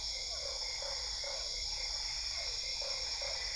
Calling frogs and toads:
Boana lundii (Hylidae), Boana albopunctata (Hylidae), Physalaemus cuvieri (Leptodactylidae)
Cerrado, Brazil, ~9pm

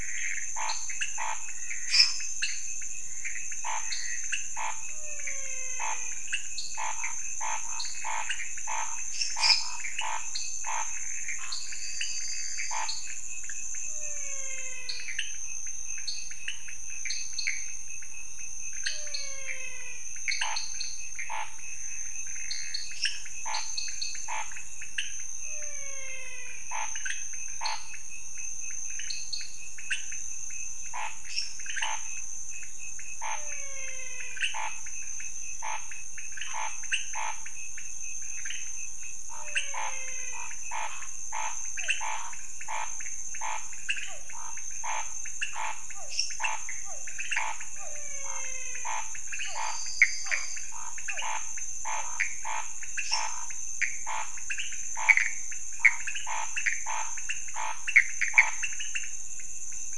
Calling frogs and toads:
Leptodactylus podicipinus (Leptodactylidae), Scinax fuscovarius (Hylidae), Dendropsophus nanus (Hylidae), Dendropsophus minutus (Hylidae), Physalaemus albonotatus (Leptodactylidae), Elachistocleis matogrosso (Microhylidae), Pithecopus azureus (Hylidae)
Cerrado, Brazil, ~3am

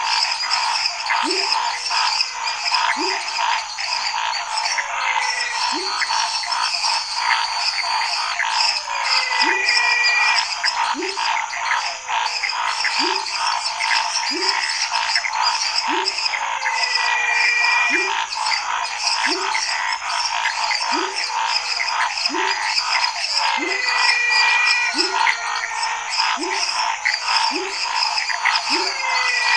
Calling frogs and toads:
Leptodactylus labyrinthicus (Leptodactylidae), Dendropsophus minutus (Hylidae), Dendropsophus nanus (Hylidae), Scinax fuscovarius (Hylidae), Elachistocleis matogrosso (Microhylidae), Physalaemus albonotatus (Leptodactylidae), Pithecopus azureus (Hylidae)
Cerrado, Brazil, ~10pm

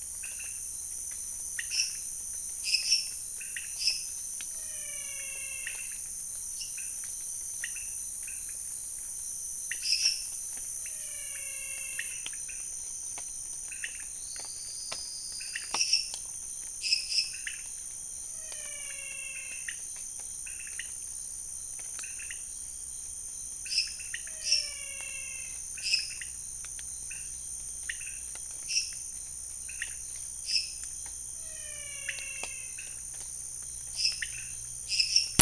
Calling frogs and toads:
Leptodactylus podicipinus (Leptodactylidae), Dendropsophus minutus (Hylidae), Physalaemus albonotatus (Leptodactylidae)
Cerrado, Brazil, 1:30am

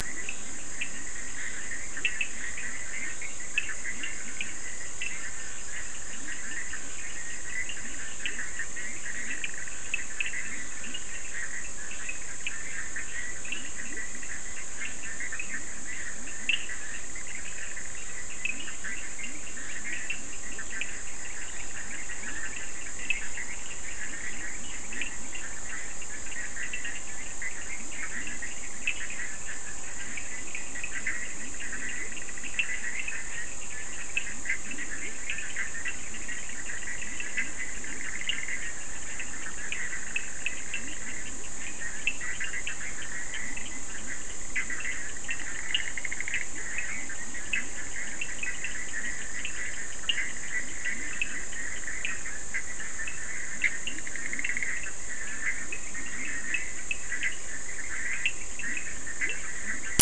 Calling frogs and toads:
Leptodactylus latrans (Leptodactylidae), Boana bischoffi (Hylidae), Sphaenorhynchus surdus (Hylidae)
Atlantic Forest, Brazil, 1:30am

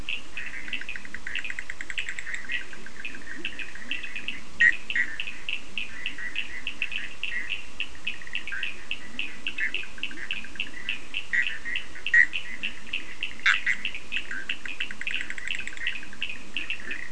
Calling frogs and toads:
Boana bischoffi (Hylidae), Leptodactylus latrans (Leptodactylidae), Sphaenorhynchus surdus (Hylidae)
Atlantic Forest, Brazil, 2:30am

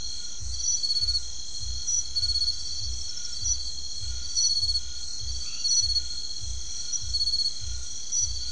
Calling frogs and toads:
Scinax alter (Hylidae)
Atlantic Forest, Brazil, 9pm

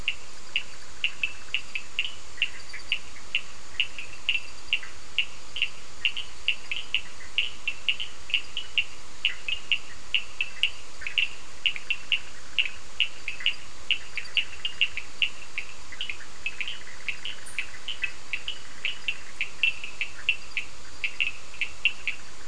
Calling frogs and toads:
Boana bischoffi (Hylidae), Sphaenorhynchus surdus (Hylidae)
Atlantic Forest, Brazil, 9:30pm

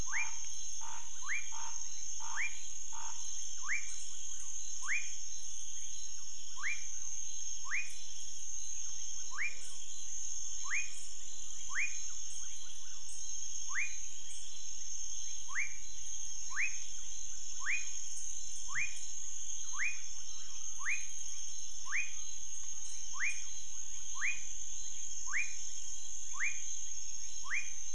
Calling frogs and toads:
Scinax fuscovarius (Hylidae), Leptodactylus fuscus (Leptodactylidae)
Cerrado, Brazil, 11pm

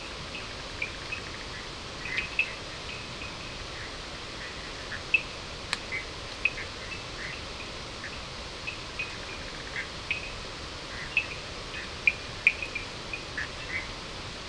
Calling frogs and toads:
Sphaenorhynchus surdus (Hylidae), Boana bischoffi (Hylidae)
Atlantic Forest, Brazil, 4:30am

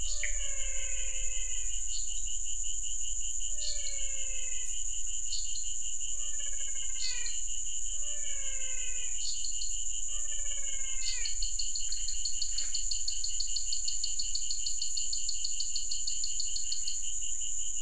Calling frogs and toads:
Dendropsophus nanus (Hylidae), Physalaemus albonotatus (Leptodactylidae), Pithecopus azureus (Hylidae)
Cerrado, Brazil, ~7pm

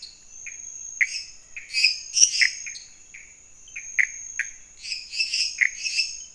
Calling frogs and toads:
Pithecopus azureus (Hylidae), Dendropsophus minutus (Hylidae), Physalaemus albonotatus (Leptodactylidae), Dendropsophus nanus (Hylidae)
Cerrado, Brazil, 11:30pm

